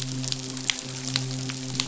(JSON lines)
{"label": "biophony, midshipman", "recorder": "SoundTrap 500"}